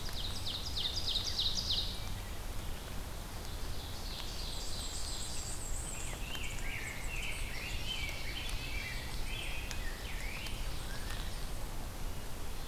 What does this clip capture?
Ovenbird, Black-and-white Warbler, Rose-breasted Grosbeak